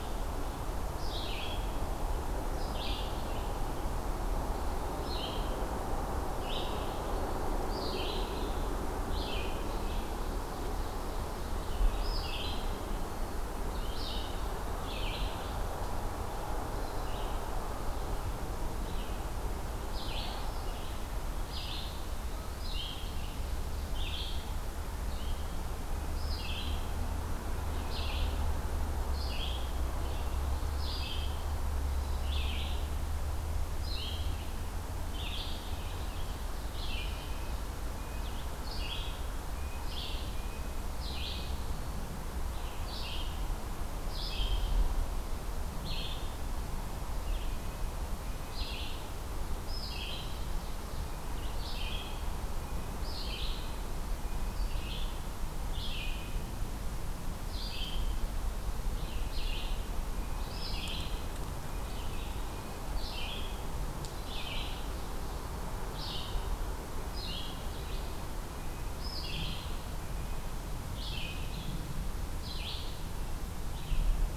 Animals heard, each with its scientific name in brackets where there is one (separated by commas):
Red-eyed Vireo (Vireo olivaceus), Red-breasted Nuthatch (Sitta canadensis), Ovenbird (Seiurus aurocapilla), Eastern Wood-Pewee (Contopus virens)